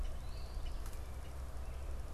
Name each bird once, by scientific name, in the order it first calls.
Sayornis phoebe, Agelaius phoeniceus